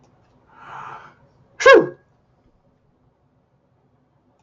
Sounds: Sneeze